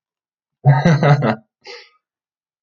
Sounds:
Laughter